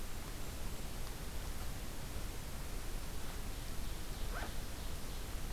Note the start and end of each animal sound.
[3.18, 5.52] Ovenbird (Seiurus aurocapilla)

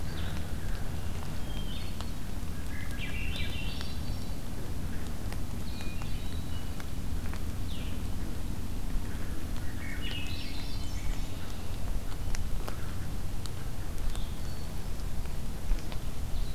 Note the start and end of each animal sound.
[0.00, 16.55] Blue-headed Vireo (Vireo solitarius)
[1.36, 2.14] Hermit Thrush (Catharus guttatus)
[2.47, 4.36] Swainson's Thrush (Catharus ustulatus)
[5.75, 6.94] Hermit Thrush (Catharus guttatus)
[9.52, 11.30] Swainson's Thrush (Catharus ustulatus)
[10.85, 11.70] Red-winged Blackbird (Agelaius phoeniceus)
[14.27, 15.10] Hermit Thrush (Catharus guttatus)

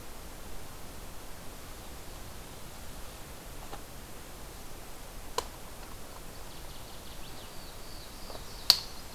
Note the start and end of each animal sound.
[6.11, 7.63] Northern Waterthrush (Parkesia noveboracensis)
[7.27, 8.80] Black-throated Blue Warbler (Setophaga caerulescens)
[8.58, 9.14] Northern Waterthrush (Parkesia noveboracensis)

